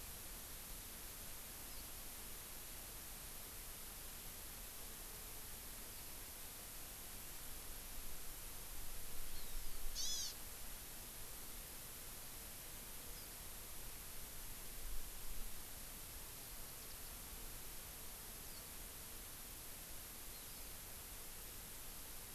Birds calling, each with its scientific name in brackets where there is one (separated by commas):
Warbling White-eye (Zosterops japonicus), Hawaii Amakihi (Chlorodrepanis virens)